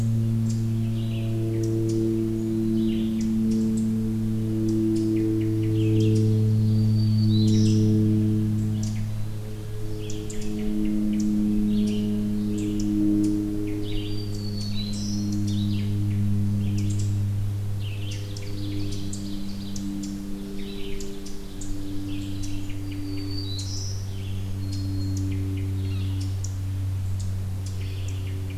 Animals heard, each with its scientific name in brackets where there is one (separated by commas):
Red-eyed Vireo (Vireo olivaceus), Black-throated Green Warbler (Setophaga virens), Ovenbird (Seiurus aurocapilla)